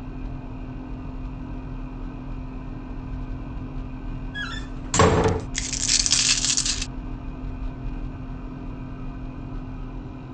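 First a door slams. Then a coin drops.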